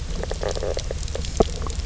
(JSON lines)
{"label": "biophony, stridulation", "recorder": "SoundTrap 300"}